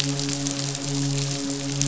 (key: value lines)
label: biophony, midshipman
recorder: SoundTrap 500